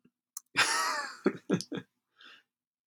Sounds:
Laughter